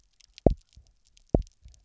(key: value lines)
label: biophony, double pulse
recorder: SoundTrap 300